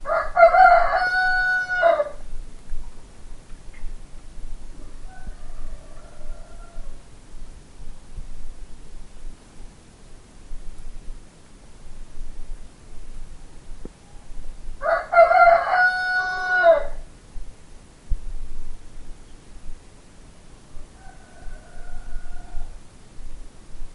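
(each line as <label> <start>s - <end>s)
A rooster crows loudly outdoors. 0.0s - 2.1s
A distant rooster crowing outdoors. 4.1s - 6.9s
A rooster crows loudly outdoors. 14.8s - 17.2s
A rooster crows in the distance. 20.7s - 22.9s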